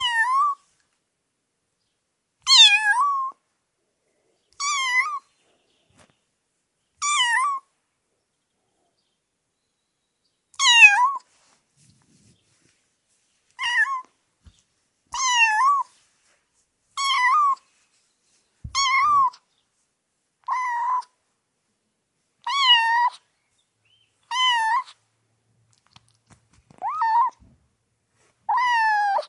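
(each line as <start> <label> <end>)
0.0 A small cat is meowing. 0.6
2.5 A small cat is meowing with a high-pitched start. 3.4
4.5 A small cat is meowing. 5.2
7.0 A small cat is meowing. 7.6
10.6 A small cat meows, louder at the beginning. 11.2
11.2 A small cat rubs against fabric. 20.3
13.5 A small cat is meowing quietly. 14.0
15.1 A small cat is meowing. 15.9
16.9 A small cat is meowing. 17.6
18.7 A small cat is meowing. 19.4
20.5 A small cat is meowing with a rolling r sound. 21.0
22.5 A small cat is meowing. 23.1
24.3 A small cat is meowing. 24.9
25.5 A kitten is licking. 27.4
25.5 A small cat rubs against fabric. 27.4
26.8 A small cat is softly meowing. 27.4
28.4 A small cat is meowing in a worried manner. 29.3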